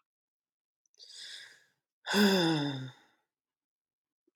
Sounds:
Sigh